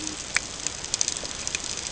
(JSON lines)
{"label": "ambient", "recorder": "HydroMoth"}